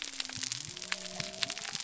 {"label": "biophony", "recorder": "SoundTrap 300"}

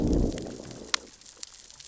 {"label": "biophony, growl", "recorder": "SoundTrap 600 or HydroMoth"}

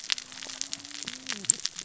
{"label": "biophony, cascading saw", "recorder": "SoundTrap 600 or HydroMoth"}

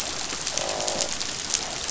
{"label": "biophony, croak", "recorder": "SoundTrap 500"}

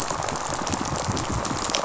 {"label": "biophony, rattle response", "recorder": "SoundTrap 500"}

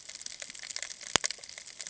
{"label": "ambient", "recorder": "HydroMoth"}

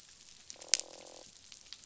{"label": "biophony, croak", "recorder": "SoundTrap 500"}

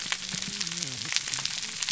{"label": "biophony, whup", "recorder": "SoundTrap 300"}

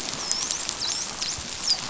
{"label": "biophony, dolphin", "recorder": "SoundTrap 500"}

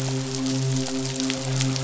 {"label": "biophony, midshipman", "recorder": "SoundTrap 500"}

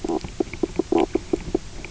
{"label": "biophony, knock croak", "recorder": "SoundTrap 300"}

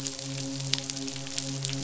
{"label": "biophony, midshipman", "recorder": "SoundTrap 500"}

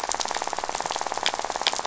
{"label": "biophony, rattle", "recorder": "SoundTrap 500"}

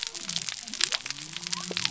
{"label": "biophony", "recorder": "SoundTrap 300"}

